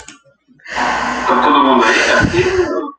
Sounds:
Sigh